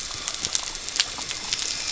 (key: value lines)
label: anthrophony, boat engine
recorder: SoundTrap 300